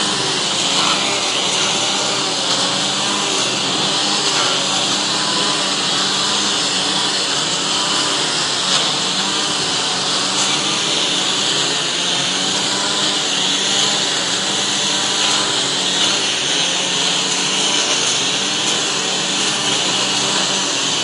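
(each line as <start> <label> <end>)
0.0 A lawnmower is cutting grass. 21.0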